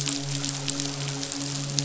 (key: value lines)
label: biophony, midshipman
recorder: SoundTrap 500